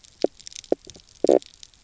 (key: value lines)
label: biophony, knock croak
recorder: SoundTrap 300